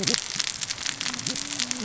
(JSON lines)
{"label": "biophony, cascading saw", "recorder": "SoundTrap 600 or HydroMoth"}